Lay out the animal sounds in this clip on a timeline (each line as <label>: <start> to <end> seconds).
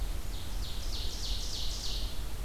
Ovenbird (Seiurus aurocapilla): 0.0 to 2.4 seconds